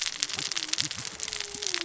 {"label": "biophony, cascading saw", "recorder": "SoundTrap 600 or HydroMoth"}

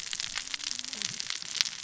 {"label": "biophony, cascading saw", "recorder": "SoundTrap 600 or HydroMoth"}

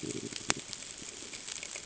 {"label": "ambient", "recorder": "HydroMoth"}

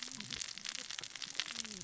{"label": "biophony, cascading saw", "recorder": "SoundTrap 600 or HydroMoth"}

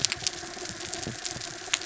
{"label": "anthrophony, mechanical", "recorder": "SoundTrap 300"}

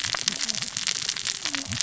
{"label": "biophony, cascading saw", "recorder": "SoundTrap 600 or HydroMoth"}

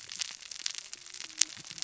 {"label": "biophony, cascading saw", "recorder": "SoundTrap 600 or HydroMoth"}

